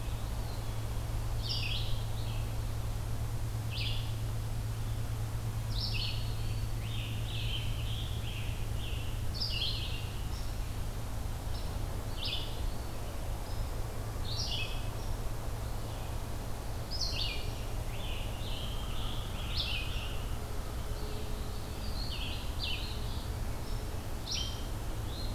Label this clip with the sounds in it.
Red-eyed Vireo, Eastern Wood-Pewee, Scarlet Tanager, Eastern Phoebe